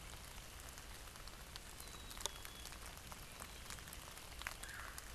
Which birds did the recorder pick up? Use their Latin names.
Poecile atricapillus, Melanerpes carolinus